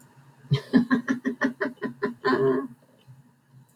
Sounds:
Laughter